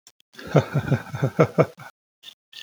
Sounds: Laughter